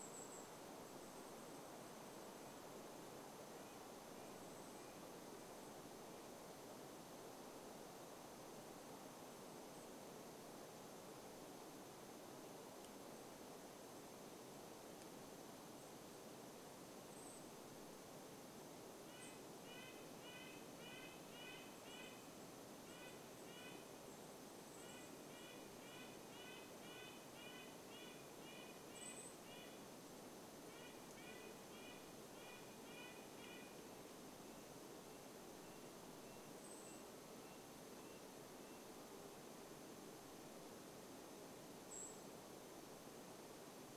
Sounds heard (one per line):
Golden-crowned Kinglet call
Red-breasted Nuthatch song
Golden-crowned Kinglet song